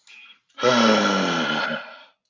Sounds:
Sigh